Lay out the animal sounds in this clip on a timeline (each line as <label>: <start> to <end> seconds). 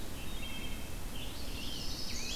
Red-eyed Vireo (Vireo olivaceus): 0.0 to 2.4 seconds
Wood Thrush (Hylocichla mustelina): 0.1 to 1.0 seconds
Scarlet Tanager (Piranga olivacea): 1.1 to 2.4 seconds
Chestnut-sided Warbler (Setophaga pensylvanica): 1.1 to 2.4 seconds